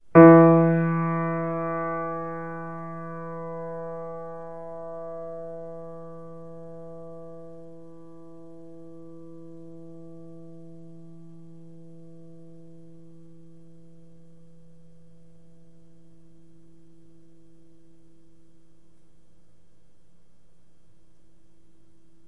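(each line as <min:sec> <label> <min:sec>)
0:00.1 A piano key is struck forcefully, producing a buzzing resonance that gradually fades away. 0:15.2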